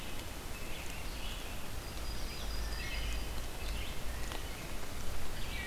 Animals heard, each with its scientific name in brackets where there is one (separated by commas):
Wood Thrush (Hylocichla mustelina), Red-eyed Vireo (Vireo olivaceus), Yellow-rumped Warbler (Setophaga coronata), American Robin (Turdus migratorius)